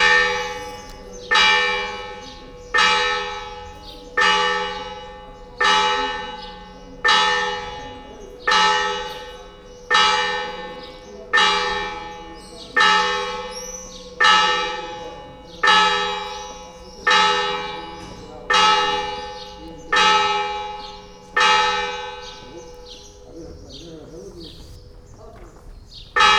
What else can be heard in the background?
talking